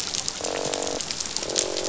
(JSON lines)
{"label": "biophony, croak", "recorder": "SoundTrap 500"}